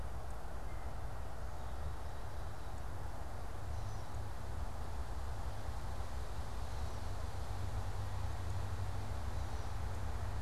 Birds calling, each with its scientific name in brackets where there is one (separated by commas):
Gray Catbird (Dumetella carolinensis)